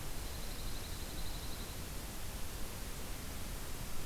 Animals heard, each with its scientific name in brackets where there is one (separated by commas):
Dark-eyed Junco (Junco hyemalis)